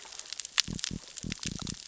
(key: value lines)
label: biophony
recorder: SoundTrap 600 or HydroMoth